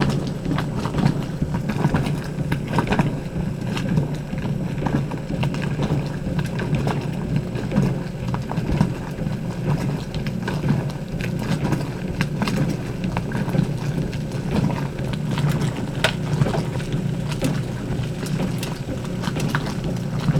What liquid is involved in the making of this sound?
water